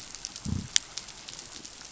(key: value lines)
label: biophony
recorder: SoundTrap 500